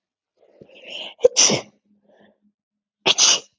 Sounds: Sneeze